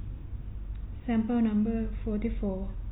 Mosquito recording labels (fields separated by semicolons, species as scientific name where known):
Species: no mosquito; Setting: cup